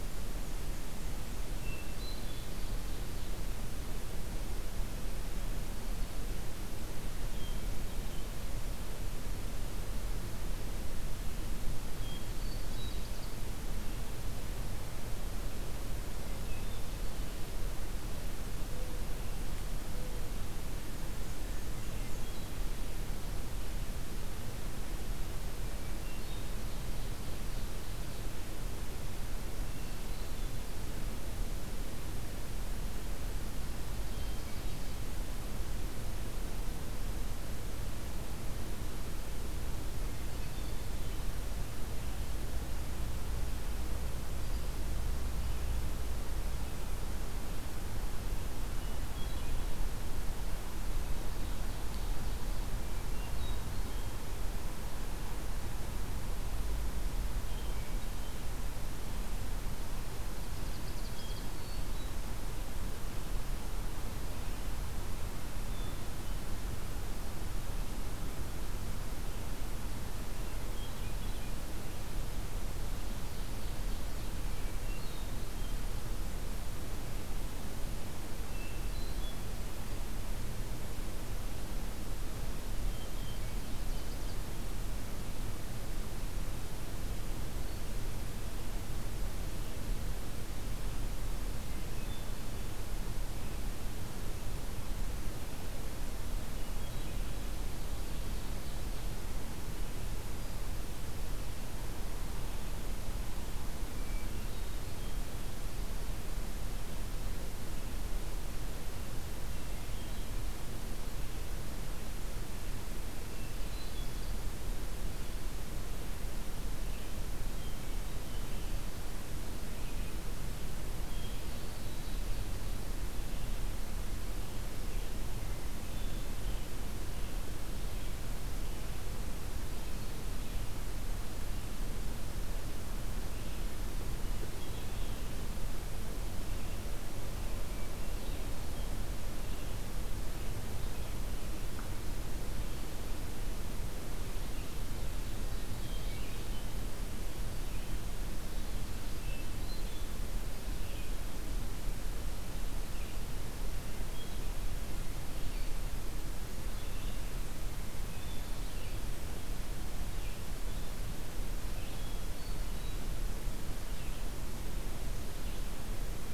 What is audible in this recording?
Black-and-white Warbler, Hermit Thrush, Ovenbird, Mourning Dove, Red-eyed Vireo